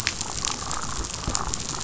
{"label": "biophony", "recorder": "SoundTrap 500"}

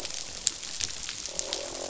{"label": "biophony, croak", "recorder": "SoundTrap 500"}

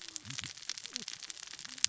{"label": "biophony, cascading saw", "recorder": "SoundTrap 600 or HydroMoth"}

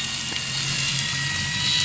{"label": "anthrophony, boat engine", "recorder": "SoundTrap 500"}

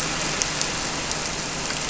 {"label": "anthrophony, boat engine", "recorder": "SoundTrap 300"}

